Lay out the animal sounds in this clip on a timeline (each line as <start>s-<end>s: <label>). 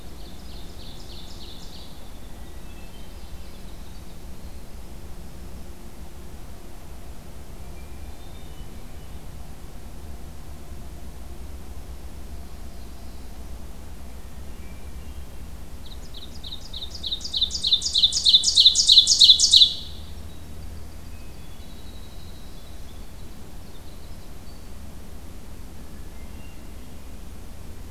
0.0s-2.1s: Ovenbird (Seiurus aurocapilla)
1.9s-4.8s: Winter Wren (Troglodytes hiemalis)
2.2s-3.7s: Hermit Thrush (Catharus guttatus)
7.7s-9.2s: Hermit Thrush (Catharus guttatus)
12.4s-13.6s: Black-throated Blue Warbler (Setophaga caerulescens)
14.3s-15.4s: Hermit Thrush (Catharus guttatus)
15.8s-19.9s: Ovenbird (Seiurus aurocapilla)
20.0s-24.7s: Winter Wren (Troglodytes hiemalis)
26.0s-27.0s: Hermit Thrush (Catharus guttatus)